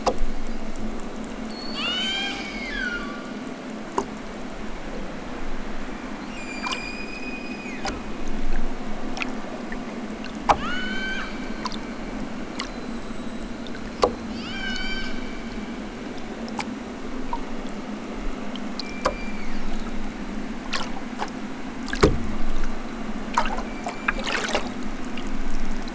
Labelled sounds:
1.5	3.1	killer whale, southern Alaska resident, 0.69 to 8.0 kHz
6.3	8.2	killer whale, southern Alaska resident, 0.96 to 8.0 kHz
10.5	11.4	killer whale, southern Alaska resident, 0.87 to 8.0 kHz
14.2	15.3	killer whale, southern Alaska resident, 0.87 to 8.0 kHz
18.7	20.1	killer whale, southern Alaska resident, 1.1 to 5.0 kHz
23.5	25.0	killer whale, southern Alaska resident, 1.0 to 7.2 kHz

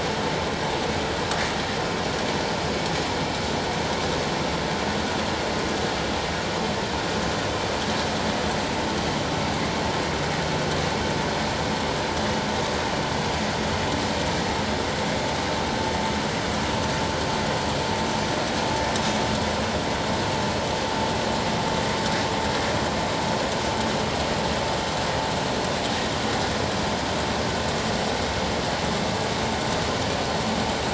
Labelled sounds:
0.8	1.1	humpback whale, 6.8 to 7.2 kHz

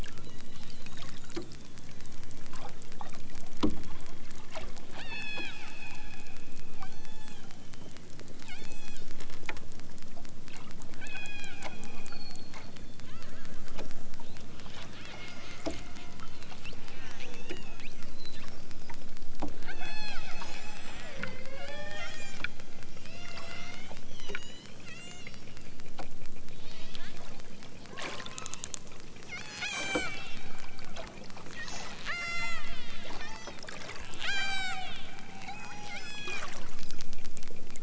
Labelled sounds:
0.2	0.9	killer whale, southern Alaska resident, 1.4 to 4.6 kHz
5.0	7.5	killer whale, southern Alaska resident, 0.51 to 8.0 kHz
8.4	9.1	killer whale, southern Alaska resident, 0.51 to 8.0 kHz
10.9	11.6	killer whale, southern Alaska resident, 0.41 to 6.5 kHz
13.0	13.4	killer whale, southern Alaska resident, 0.74 to 5.0 kHz
14.8	15.6	killer whale, southern Alaska resident, 0.97 to 6.9 kHz
16.8	18.0	killer whale, southern Alaska resident, 0.97 to 7.4 kHz
19.6	20.7	killer whale, southern Alaska resident, 0.41 to 8.0 kHz
20.9	22.5	killer whale, southern Alaska resident, 0.32 to 8.0 kHz
22.9	25.5	killer whale, southern Alaska resident, 0.37 to 8.0 kHz
26.6	27.1	killer whale, southern Alaska resident, 0.74 to 8.0 kHz
28.2	28.8	killer whale, southern Alaska resident, 0.74 to 7.3 kHz
29.3	30.5	killer whale, southern Alaska resident, 0.51 to 8.0 kHz
31.4	32.7	killer whale, southern Alaska resident, 0.46 to 8.0 kHz
33.2	33.5	killer whale, southern Alaska resident, 0.69 to 7.6 kHz
34.2	35.0	killer whale, southern Alaska resident, 0.32 to 8.0 kHz
35.4	36.4	killer whale, southern Alaska resident, 0.55 to 8.0 kHz

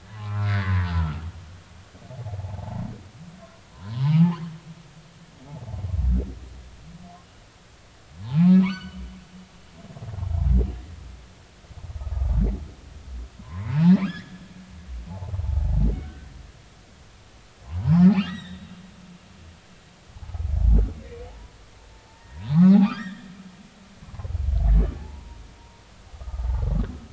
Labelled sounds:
0.1	1.2	humpback whale, 0.96 to 2.4 kHz
2.1	2.9	humpback whale, 0.80 to 1.1 kHz
3.9	4.2	humpback whale, 0.80 to 1.2 kHz
8.2	9.0	humpback whale, 0.80 to 4.6 kHz
13.4	14.4	humpback whale, 0.90 to 3.6 kHz
15.1	16.3	humpback whale, 0.80 to 1.6 kHz
17.8	18.7	humpback whale, 0.80 to 5.8 kHz
20.2	20.4	humpback whale, 0.80 to 0.96 kHz
21.3	23.3	humpback whale, 0.80 to 3.4 kHz
25.0	25.4	humpback whale, 0.80 to 1.1 kHz
26.2	26.7	humpback whale, 0.80 to 1.3 kHz

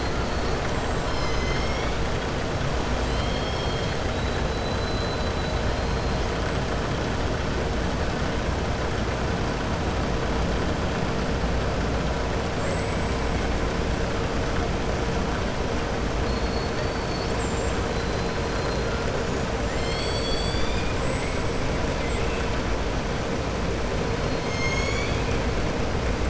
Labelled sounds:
3.0	4.0	killer whale, southern resident, 2.8 to 5.5 kHz
4.5	5.5	killer whale, southern resident, 3.9 to 4.6 kHz
12.5	13.4	killer whale, southern resident, 6.8 to 7.9 kHz
16.2	17.3	killer whale, southern resident, 3.5 to 5.2 kHz
17.9	18.4	killer whale, southern resident, 4.0 to 4.9 kHz

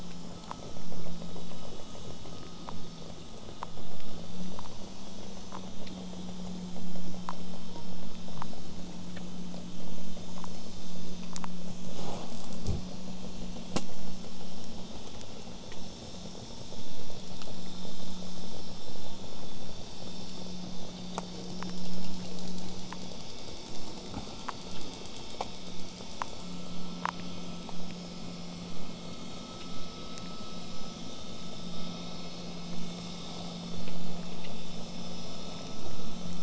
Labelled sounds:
28.7	33.7	vessel noise, 0 to 8.0 kHz

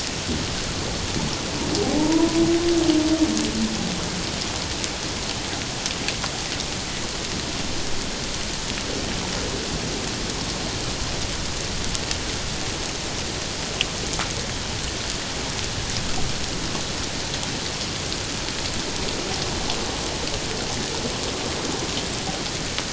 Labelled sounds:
1.8	2.4	humpback whale, 0.78 to 1.0 kHz

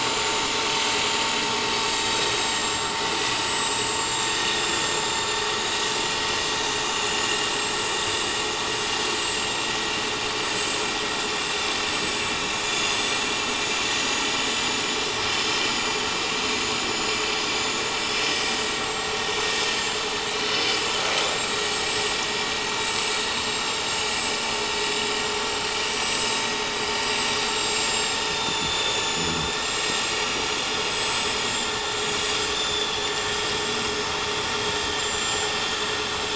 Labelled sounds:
1.4	6.2	vessel noise, 3.3 to 8.0 kHz
7.1	7.8	vessel noise, 6.8 to 7.7 kHz
9.1	9.7	vessel noise, 7.5 to 7.8 kHz
10.4	10.7	vessel noise, 7.6 to 7.8 kHz
11.9	12.1	vessel noise, 7.7 to 7.8 kHz
12.9	14.8	vessel noise, 6.8 to 7.9 kHz
15.6	17.1	vessel noise, 6.3 to 8.0 kHz
17.5	20.0	vessel noise, 6.2 to 7.9 kHz
20.3	20.7	vessel noise, 7.7 to 8.0 kHz
21.3	22.2	vessel noise, 6.5 to 7.8 kHz
22.6	24.4	vessel noise, 6.6 to 7.8 kHz
25.2	26.4	vessel noise, 5.6 to 7.8 kHz
26.7	34.0	vessel noise, 3.3 to 7.8 kHz
34.6	35.9	vessel noise, 6.4 to 7.9 kHz

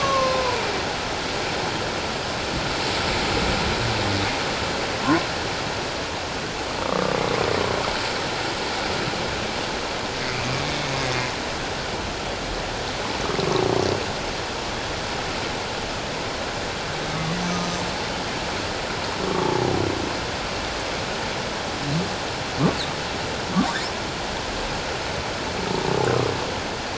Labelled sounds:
6.8	7.2	humpback whale, 1.1 to 1.4 kHz
19.3	19.8	humpback whale, 0.78 to 1.2 kHz
23.5	23.8	humpback whale, 1.0 to 1.2 kHz

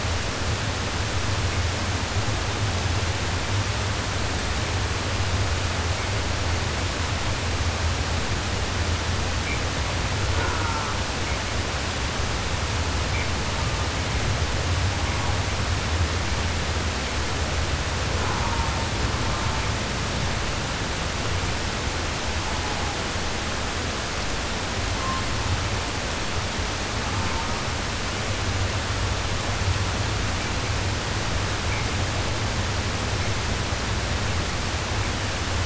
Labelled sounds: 10.2	11.0	killer whale, southern resident, 0.24 to 1.7 kHz
13.4	14.1	killer whale, southern resident, 0.62 to 1.7 kHz
14.8	15.6	killer whale, southern resident, 0.62 to 1.4 kHz
18.1	19.9	killer whale, southern resident, 0.36 to 1.8 kHz
22.4	23.1	killer whale, southern resident, 0.56 to 1.4 kHz
26.9	27.7	killer whale, southern resident, 0.62 to 1.6 kHz

